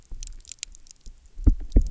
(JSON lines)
{"label": "biophony, double pulse", "recorder": "SoundTrap 300"}